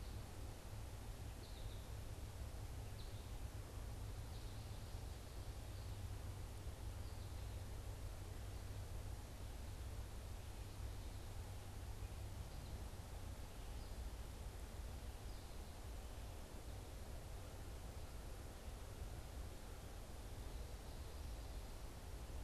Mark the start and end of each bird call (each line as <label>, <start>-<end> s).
American Goldfinch (Spinus tristis), 0.0-6.3 s